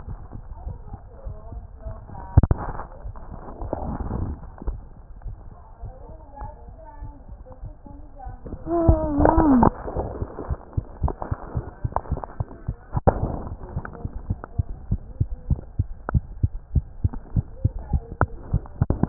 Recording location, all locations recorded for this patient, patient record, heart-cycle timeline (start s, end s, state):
mitral valve (MV)
aortic valve (AV)+pulmonary valve (PV)+tricuspid valve (TV)+mitral valve (MV)
#Age: Child
#Sex: Female
#Height: 76.0 cm
#Weight: 9.05 kg
#Pregnancy status: False
#Murmur: Absent
#Murmur locations: nan
#Most audible location: nan
#Systolic murmur timing: nan
#Systolic murmur shape: nan
#Systolic murmur grading: nan
#Systolic murmur pitch: nan
#Systolic murmur quality: nan
#Diastolic murmur timing: nan
#Diastolic murmur shape: nan
#Diastolic murmur grading: nan
#Diastolic murmur pitch: nan
#Diastolic murmur quality: nan
#Outcome: Abnormal
#Campaign: 2015 screening campaign
0.00	13.54	unannotated
13.54	13.74	diastole
13.74	13.84	S1
13.84	14.02	systole
14.02	14.12	S2
14.12	14.28	diastole
14.28	14.38	S1
14.38	14.56	systole
14.56	14.70	S2
14.70	14.90	diastole
14.90	15.02	S1
15.02	15.18	systole
15.18	15.28	S2
15.28	15.48	diastole
15.48	15.62	S1
15.62	15.76	systole
15.76	15.90	S2
15.90	16.12	diastole
16.12	16.26	S1
16.26	16.40	systole
16.40	16.52	S2
16.52	16.74	diastole
16.74	16.88	S1
16.88	17.02	systole
17.02	17.12	S2
17.12	17.34	diastole
17.34	17.48	S1
17.48	17.62	systole
17.62	17.76	S2
17.76	17.92	diastole
17.92	18.02	S1
18.02	18.20	systole
18.20	18.30	S2
18.30	18.52	diastole
18.52	18.66	S1
18.66	18.80	systole
18.80	18.88	S2
18.88	19.09	diastole